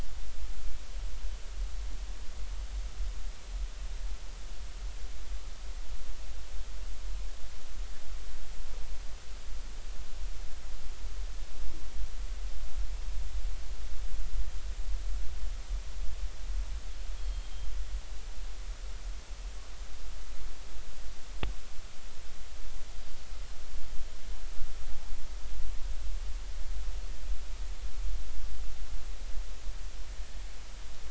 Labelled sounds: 17.2	17.7	Pacific white-sided dolphin, 3.1 to 3.3 kHz

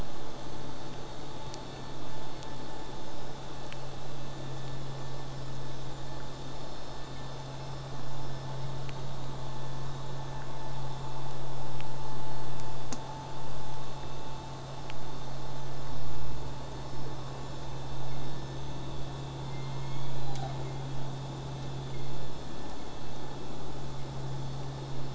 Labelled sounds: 19.5	20.8	killer whale, southern resident, J pod, call S01, 0.25 to 6.9 kHz

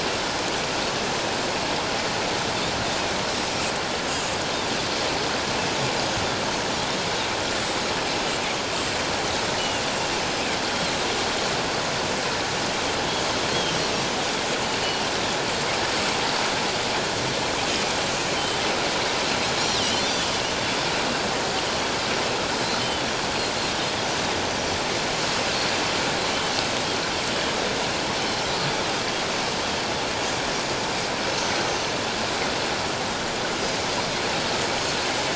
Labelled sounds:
7.4	7.8	Pacific white-sided dolphin, 7.1 to 7.9 kHz
9.6	9.8	Pacific white-sided dolphin, 2.7 to 3.0 kHz
13.5	13.8	Pacific white-sided dolphin, 2.9 to 3.4 kHz
14.8	15.1	Pacific white-sided dolphin, 2.8 to 3.0 kHz
19.2	20.3	Pacific white-sided dolphin, 2.8 to 4.2 kHz
21.6	21.9	Pacific white-sided dolphin, 2.9 to 3.2 kHz
22.8	23.0	Pacific white-sided dolphin, 2.9 to 3.1 kHz
28.2	28.5	Pacific white-sided dolphin, 3.0 to 3.1 kHz

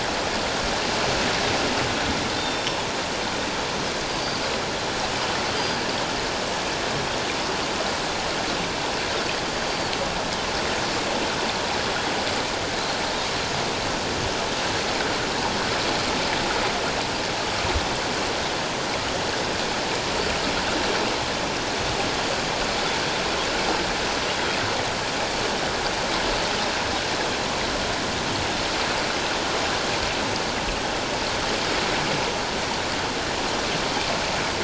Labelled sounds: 2.4	2.8	Pacific white-sided dolphin, 3.4 to 5.5 kHz
4.1	4.4	Pacific white-sided dolphin, 4.6 to 4.8 kHz
5.6	5.8	Pacific white-sided dolphin, 4.6 to 4.9 kHz
24.0	24.3	Pacific white-sided dolphin, 5.8 to 6.0 kHz

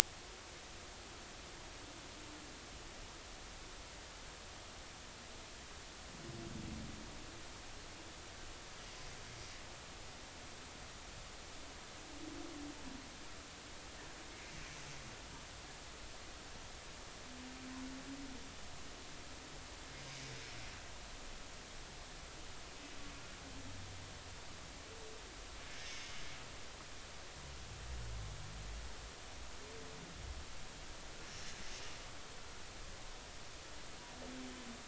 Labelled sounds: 25.8	26.2	humpback whale, 2.1 to 6.4 kHz

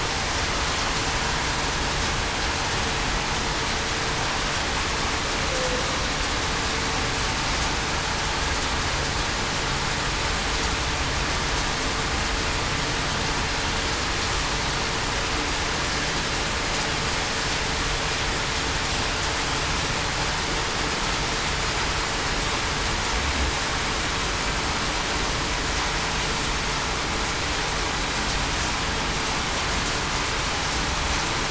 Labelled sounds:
5.5	5.8	humpback whale, 0.49 to 0.56 kHz

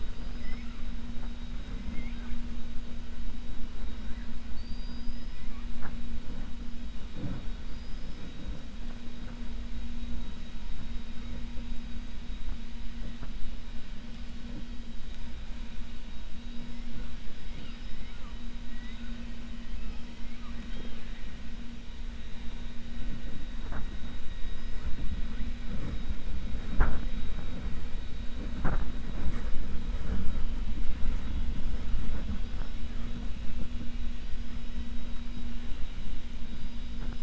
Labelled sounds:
0.4	0.8	killer whale, 0.47 to 3.1 kHz
7.6	8.2	killer whale, 4.2 to 5.6 kHz
18.7	19.2	killer whale, 0.98 to 3.8 kHz

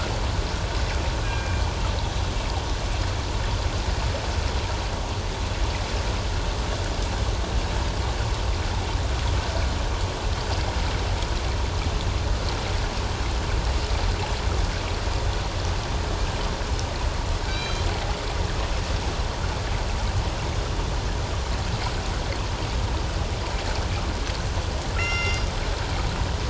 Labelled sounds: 1.2	1.6	killer whale, northern resident, G clan, 1.6 to 2.5 kHz
17.5	17.9	killer whale, northern resident, G clan, 2.2 to 4.9 kHz
25.0	25.5	killer whale, northern resident, G clan, 1.3 to 7.0 kHz

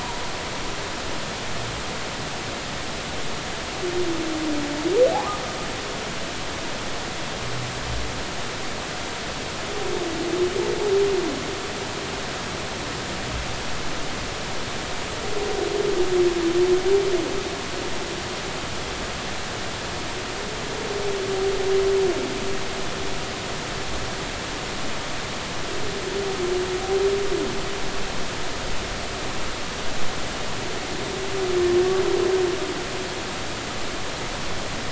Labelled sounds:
5.1	5.4	humpback whale, 0.80 to 1.3 kHz

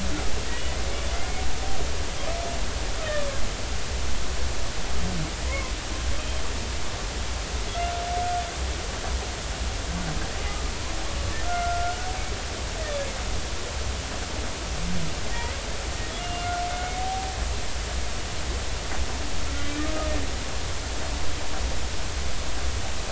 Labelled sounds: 1.1	1.4	humpback whale, 2.0 to 2.3 kHz
5.5	5.7	humpback whale, 0.96 to 1.2 kHz
11.4	12.0	humpback whale, 1.3 to 1.5 kHz
15.3	15.6	humpback whale, 1.8 to 2.1 kHz
16.2	17.0	humpback whale, 1.3 to 2.9 kHz

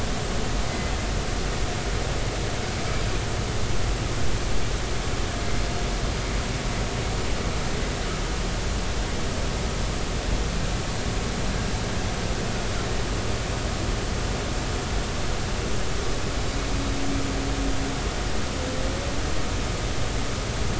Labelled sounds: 0.7	0.9	humpback whale, 2.0 to 2.1 kHz

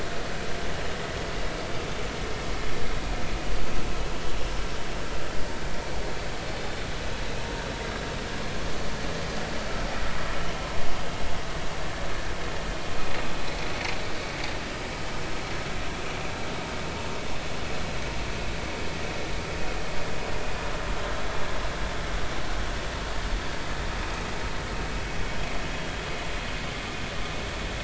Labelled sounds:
13.7	13.9	vessel noise, 4.3 to 4.5 kHz

